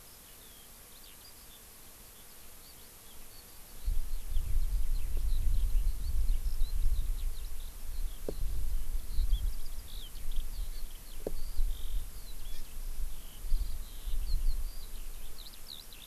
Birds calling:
Hawaii Amakihi (Chlorodrepanis virens), Eurasian Skylark (Alauda arvensis)

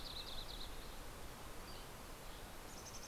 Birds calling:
Red-breasted Nuthatch (Sitta canadensis), Yellow-rumped Warbler (Setophaga coronata), Dusky Flycatcher (Empidonax oberholseri), Green-tailed Towhee (Pipilo chlorurus), Mountain Chickadee (Poecile gambeli)

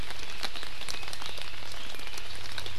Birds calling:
Red-billed Leiothrix (Leiothrix lutea)

